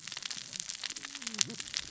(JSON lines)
{"label": "biophony, cascading saw", "recorder": "SoundTrap 600 or HydroMoth"}